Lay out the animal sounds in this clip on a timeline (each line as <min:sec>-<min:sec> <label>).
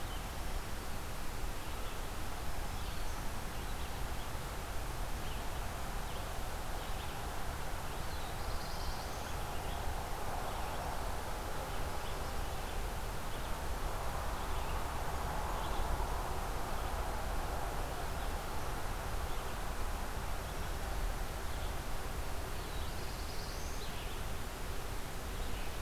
0:00.0-0:25.8 Red-eyed Vireo (Vireo olivaceus)
0:02.4-0:03.4 Black-throated Green Warbler (Setophaga virens)
0:07.7-0:09.5 Black-throated Blue Warbler (Setophaga caerulescens)
0:22.2-0:23.9 Black-throated Blue Warbler (Setophaga caerulescens)